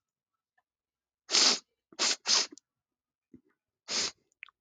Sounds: Sniff